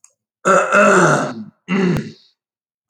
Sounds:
Throat clearing